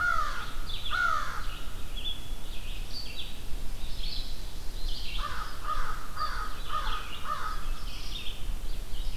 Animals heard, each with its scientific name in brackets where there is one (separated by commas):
Red-eyed Vireo (Vireo olivaceus), American Crow (Corvus brachyrhynchos)